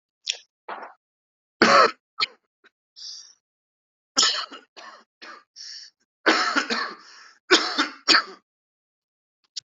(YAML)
expert_labels:
- quality: good
  cough_type: dry
  dyspnea: false
  wheezing: false
  stridor: true
  choking: false
  congestion: false
  nothing: false
  diagnosis: obstructive lung disease
age: 34
gender: male
respiratory_condition: false
fever_muscle_pain: false
status: symptomatic